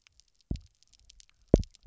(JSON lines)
{"label": "biophony, double pulse", "recorder": "SoundTrap 300"}